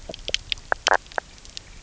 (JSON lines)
{"label": "biophony, knock croak", "recorder": "SoundTrap 300"}